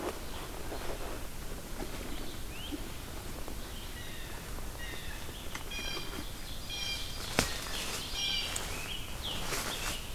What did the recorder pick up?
Blue Jay, Scarlet Tanager